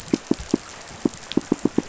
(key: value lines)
label: biophony, pulse
recorder: SoundTrap 500